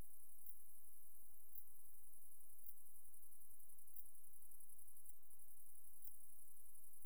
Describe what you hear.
Leptophyes punctatissima, an orthopteran